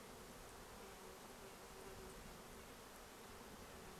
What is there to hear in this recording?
Red-breasted Nuthatch song, insect buzz